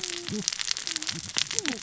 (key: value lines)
label: biophony, cascading saw
recorder: SoundTrap 600 or HydroMoth